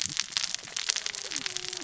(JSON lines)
{"label": "biophony, cascading saw", "recorder": "SoundTrap 600 or HydroMoth"}